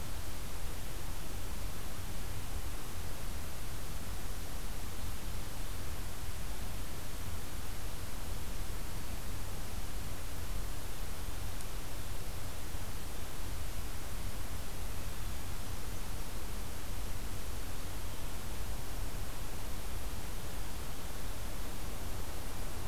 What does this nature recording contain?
forest ambience